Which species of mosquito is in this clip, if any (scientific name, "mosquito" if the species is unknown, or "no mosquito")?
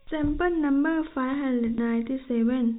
no mosquito